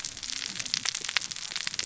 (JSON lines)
{"label": "biophony, cascading saw", "recorder": "SoundTrap 600 or HydroMoth"}